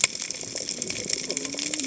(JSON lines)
{"label": "biophony, cascading saw", "recorder": "HydroMoth"}